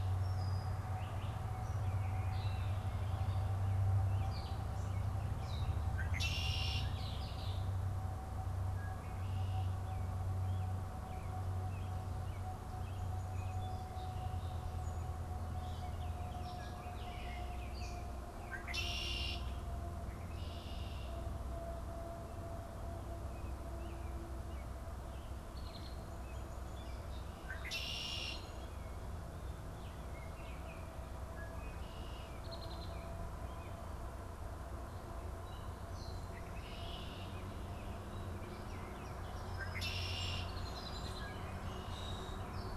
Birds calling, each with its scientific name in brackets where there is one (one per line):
Red-winged Blackbird (Agelaius phoeniceus)
American Robin (Turdus migratorius)
Baltimore Oriole (Icterus galbula)
Gray Catbird (Dumetella carolinensis)